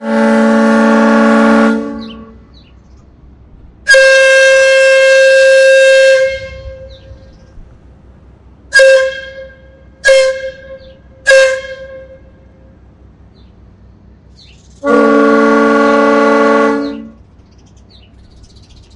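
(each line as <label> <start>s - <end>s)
A train horn sounds. 0.0s - 1.9s
Birds chirping in the background. 1.9s - 2.8s
A high-pitched and very loud horn. 3.8s - 6.6s
A bird chirps. 6.8s - 7.5s
A short, loud horn toots. 8.7s - 10.5s
A short, loud horn toots. 11.2s - 12.2s
A bird chirps. 14.4s - 14.8s
A very loud horn toots. 14.8s - 17.2s
Birds chirping in the background. 16.6s - 19.0s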